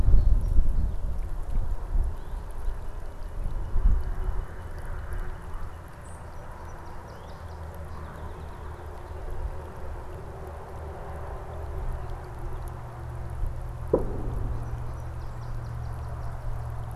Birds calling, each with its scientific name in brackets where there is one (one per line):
Northern Cardinal (Cardinalis cardinalis)
unidentified bird
Song Sparrow (Melospiza melodia)